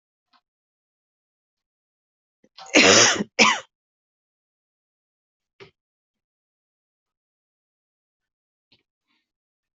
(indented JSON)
{
  "expert_labels": [
    {
      "quality": "good",
      "cough_type": "dry",
      "dyspnea": false,
      "wheezing": false,
      "stridor": false,
      "choking": false,
      "congestion": false,
      "nothing": true,
      "diagnosis": "COVID-19",
      "severity": "mild"
    }
  ],
  "age": 31,
  "gender": "female",
  "respiratory_condition": false,
  "fever_muscle_pain": true,
  "status": "symptomatic"
}